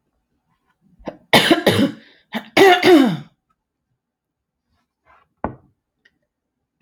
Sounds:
Throat clearing